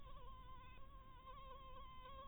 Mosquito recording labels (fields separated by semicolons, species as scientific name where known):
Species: Anopheles harrisoni; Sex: female; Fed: blood-fed; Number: one; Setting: cup